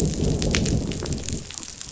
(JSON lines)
{"label": "biophony, growl", "recorder": "SoundTrap 500"}